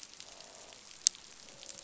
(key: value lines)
label: biophony, croak
recorder: SoundTrap 500